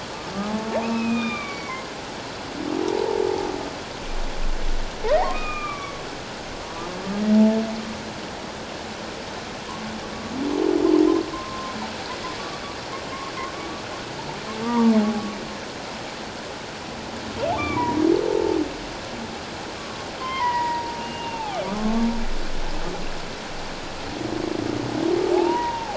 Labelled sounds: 0.8	1.9	humpback whale, 0.94 to 3.7 kHz
2.8	3.2	humpback whale, 0.78 to 1.0 kHz
5.0	6.0	humpback whale, 1.1 to 2.6 kHz
7.3	7.6	humpback whale, 0.81 to 0.91 kHz
11.3	11.7	humpback whale, 0.97 to 1.1 kHz
14.6	15.1	humpback whale, 0.81 to 1.2 kHz
17.6	18.0	humpback whale, 0.91 to 2.4 kHz
20.2	22.1	humpback whale, 0.78 to 3.2 kHz
25.3	25.9	humpback whale, 0.78 to 1.0 kHz

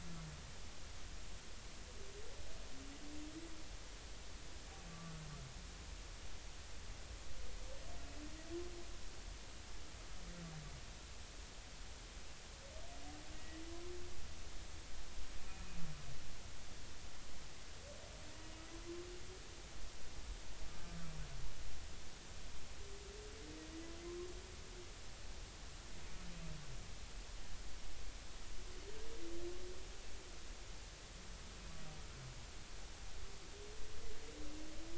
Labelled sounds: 4.9	5.2	humpback whale, 1.1 to 1.2 kHz
13.4	13.6	humpback whale, 1.9 to 2.0 kHz

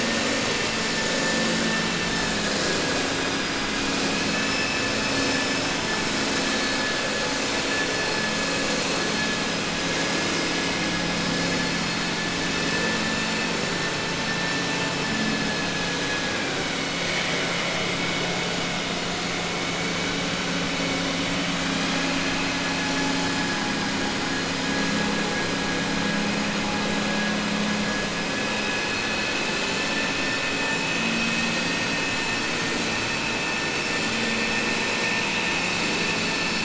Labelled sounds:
16.0	16.5	vessel noise, 0.84 to 2.6 kHz

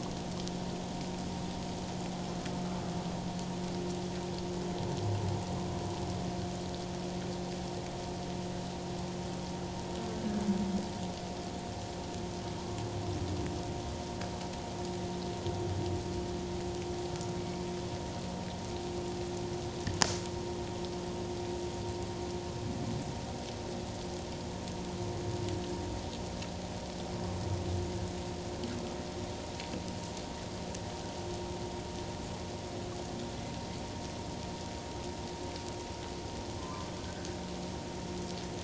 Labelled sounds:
36.6	37.3	humpback whale, 0.97 to 1.7 kHz

